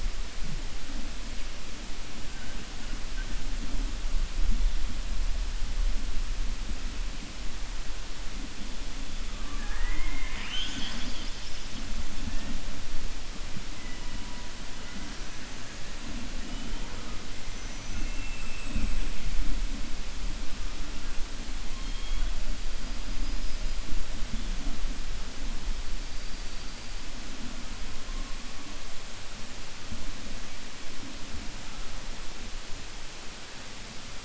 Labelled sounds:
17.5	18.9	killer whale, 2.1 to 6.3 kHz

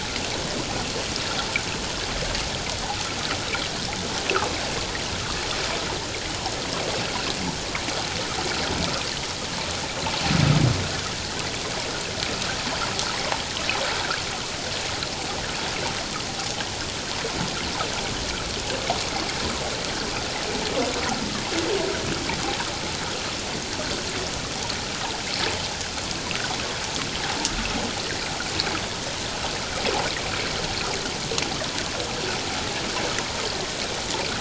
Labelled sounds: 22.4	22.7	humpback whale, 0.78 to 1.1 kHz

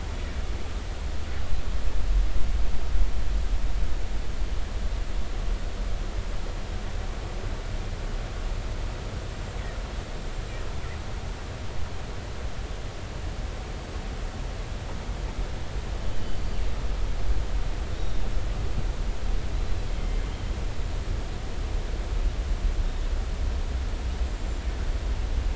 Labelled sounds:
16.0	16.4	killer whale, northern resident, G clan, 3.0 to 3.1 kHz
18.0	18.2	killer whale, northern resident, 3.6 to 3.9 kHz
20.0	20.2	killer whale, northern resident, G clan, 2.0 to 2.2 kHz
24.3	24.7	killer whale, northern resident, G clan, 7.1 to 7.5 kHz

